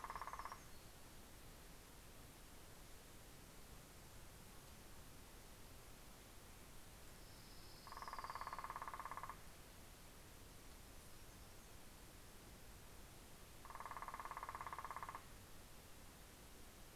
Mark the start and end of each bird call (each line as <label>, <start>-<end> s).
Hermit Warbler (Setophaga occidentalis), 10.3-11.9 s